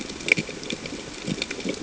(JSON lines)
{"label": "ambient", "recorder": "HydroMoth"}